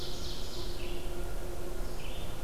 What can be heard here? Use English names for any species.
Ovenbird, Red-eyed Vireo